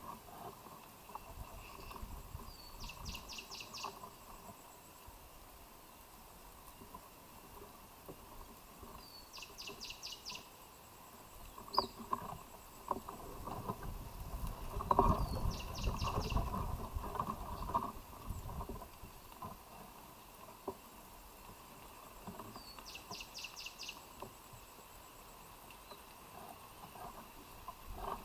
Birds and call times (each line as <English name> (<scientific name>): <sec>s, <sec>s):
Cinnamon Bracken-Warbler (Bradypterus cinnamomeus): 9.5s
Black-and-white Mannikin (Spermestes bicolor): 11.5s